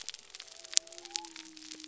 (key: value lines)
label: biophony
recorder: SoundTrap 300